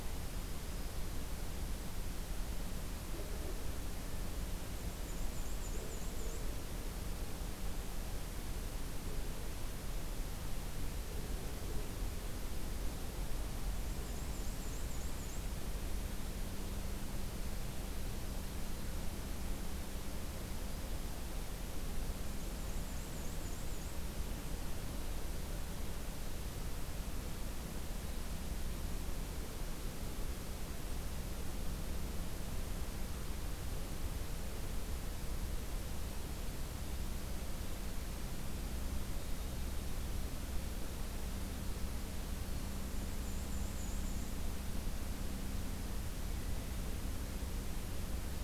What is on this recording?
Black-throated Green Warbler, Black-and-white Warbler